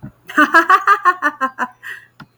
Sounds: Laughter